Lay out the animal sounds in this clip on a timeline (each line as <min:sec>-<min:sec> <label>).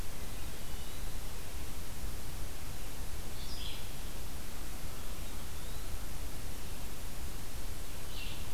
0:00.1-0:00.9 Hermit Thrush (Catharus guttatus)
0:00.3-0:01.3 Eastern Wood-Pewee (Contopus virens)
0:03.3-0:08.5 Red-eyed Vireo (Vireo olivaceus)
0:04.9-0:06.0 Eastern Wood-Pewee (Contopus virens)